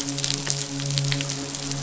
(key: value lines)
label: biophony, midshipman
recorder: SoundTrap 500